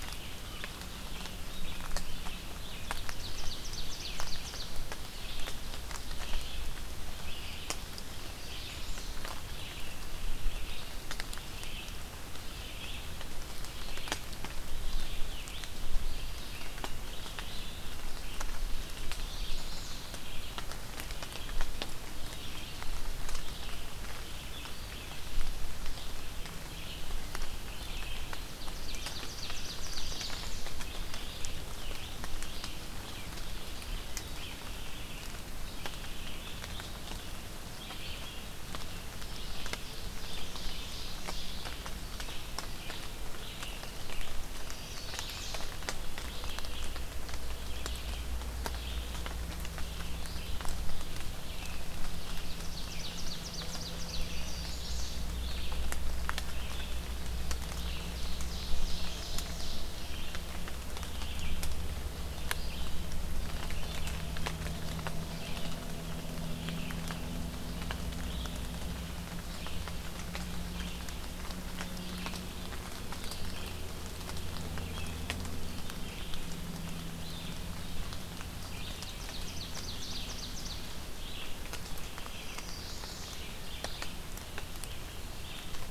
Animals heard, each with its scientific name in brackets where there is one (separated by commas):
Red-eyed Vireo (Vireo olivaceus), Ovenbird (Seiurus aurocapilla), Chestnut-sided Warbler (Setophaga pensylvanica)